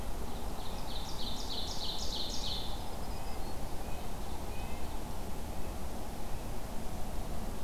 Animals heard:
Ovenbird (Seiurus aurocapilla)
Black-throated Green Warbler (Setophaga virens)
Red-breasted Nuthatch (Sitta canadensis)

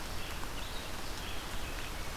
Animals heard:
Red-eyed Vireo (Vireo olivaceus)

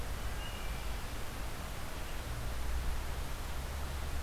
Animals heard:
Wood Thrush (Hylocichla mustelina)

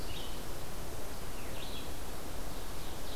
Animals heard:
Ovenbird (Seiurus aurocapilla)
Red-eyed Vireo (Vireo olivaceus)

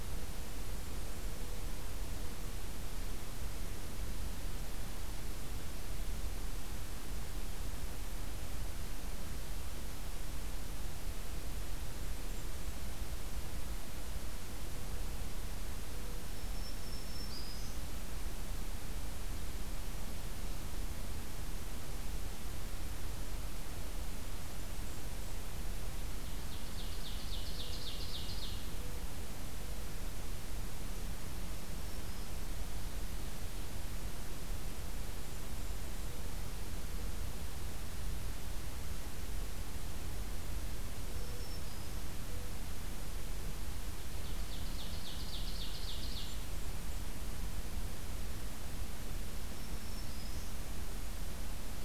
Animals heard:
Black-throated Green Warbler (Setophaga virens)
Blackburnian Warbler (Setophaga fusca)
Ovenbird (Seiurus aurocapilla)

